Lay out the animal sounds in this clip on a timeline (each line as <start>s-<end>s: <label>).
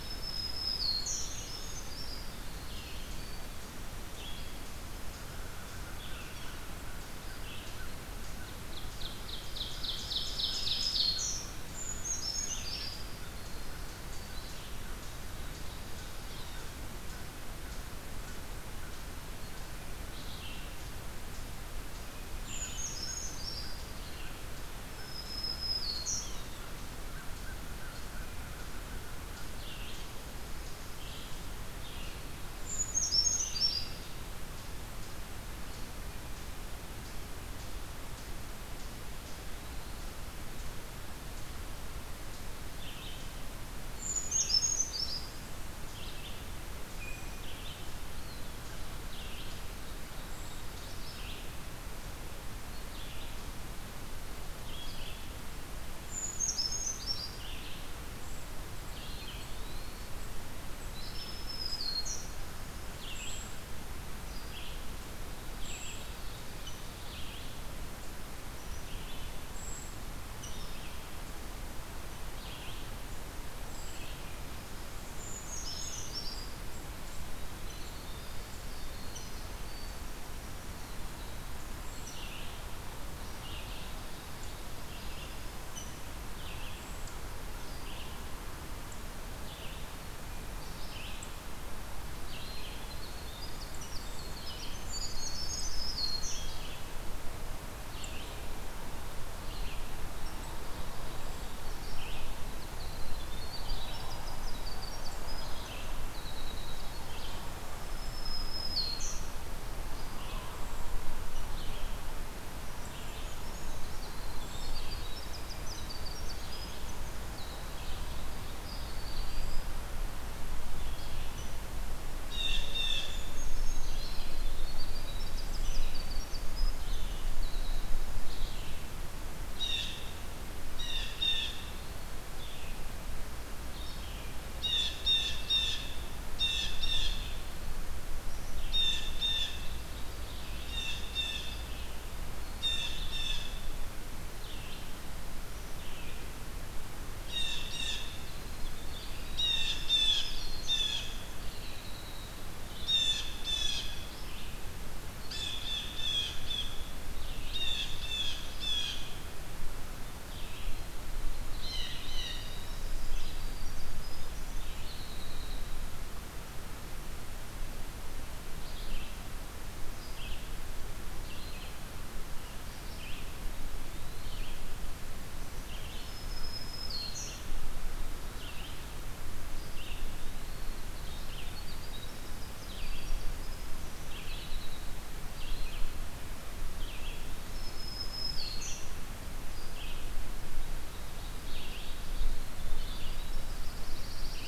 0.0s-1.6s: Black-throated Green Warbler (Setophaga virens)
0.0s-20.7s: American Crow (Corvus brachyrhynchos)
0.0s-34.0s: Red-eyed Vireo (Vireo olivaceus)
1.2s-2.3s: Brown Creeper (Certhia americana)
2.3s-3.5s: Black-throated Green Warbler (Setophaga virens)
8.4s-11.3s: Ovenbird (Seiurus aurocapilla)
9.6s-11.5s: Black-throated Green Warbler (Setophaga virens)
11.7s-13.1s: Brown Creeper (Certhia americana)
22.4s-23.9s: Brown Creeper (Certhia americana)
22.5s-29.5s: American Crow (Corvus brachyrhynchos)
24.9s-26.3s: Black-throated Green Warbler (Setophaga virens)
32.5s-34.1s: Brown Creeper (Certhia americana)
39.3s-40.2s: Eastern Wood-Pewee (Contopus virens)
42.8s-107.6s: Red-eyed Vireo (Vireo olivaceus)
44.0s-45.5s: Brown Creeper (Certhia americana)
48.0s-48.7s: Eastern Wood-Pewee (Contopus virens)
49.4s-51.1s: Ovenbird (Seiurus aurocapilla)
50.2s-101.6s: Brown Creeper (Certhia americana)
59.0s-60.2s: Eastern Wood-Pewee (Contopus virens)
61.0s-62.3s: Black-throated Green Warbler (Setophaga virens)
66.6s-86.0s: Rose-breasted Grosbeak (Pheucticus ludovicianus)
77.7s-80.1s: Winter Wren (Troglodytes hiemalis)
92.7s-94.8s: Winter Wren (Troglodytes hiemalis)
93.8s-94.0s: Rose-breasted Grosbeak (Pheucticus ludovicianus)
95.3s-96.5s: Black-throated Green Warbler (Setophaga virens)
102.6s-107.1s: Winter Wren (Troglodytes hiemalis)
107.7s-109.3s: Black-throated Green Warbler (Setophaga virens)
109.9s-164.9s: Red-eyed Vireo (Vireo olivaceus)
110.4s-125.8s: Brown Creeper (Certhia americana)
112.8s-117.8s: Winter Wren (Troglodytes hiemalis)
118.6s-119.8s: Eastern Wood-Pewee (Contopus virens)
122.3s-123.3s: Blue Jay (Cyanocitta cristata)
124.4s-128.1s: Winter Wren (Troglodytes hiemalis)
129.4s-131.7s: Blue Jay (Cyanocitta cristata)
131.2s-132.2s: Eastern Wood-Pewee (Contopus virens)
134.5s-143.7s: Blue Jay (Cyanocitta cristata)
140.1s-142.1s: Ovenbird (Seiurus aurocapilla)
147.2s-159.4s: Blue Jay (Cyanocitta cristata)
148.6s-152.4s: Winter Wren (Troglodytes hiemalis)
149.6s-151.1s: Black-throated Green Warbler (Setophaga virens)
160.0s-160.9s: Eastern Wood-Pewee (Contopus virens)
161.3s-162.7s: Blue Jay (Cyanocitta cristata)
162.6s-165.9s: Winter Wren (Troglodytes hiemalis)
168.5s-194.5s: Red-eyed Vireo (Vireo olivaceus)
173.6s-174.5s: Eastern Wood-Pewee (Contopus virens)
175.8s-177.5s: Black-throated Green Warbler (Setophaga virens)
180.1s-180.8s: Eastern Wood-Pewee (Contopus virens)
181.3s-185.0s: Winter Wren (Troglodytes hiemalis)
186.7s-187.8s: Eastern Wood-Pewee (Contopus virens)
187.4s-188.9s: Black-throated Green Warbler (Setophaga virens)
190.8s-192.6s: Ovenbird (Seiurus aurocapilla)
192.1s-194.5s: Winter Wren (Troglodytes hiemalis)
193.2s-194.5s: Pine Warbler (Setophaga pinus)